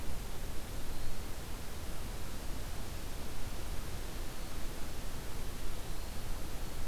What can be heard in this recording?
Eastern Wood-Pewee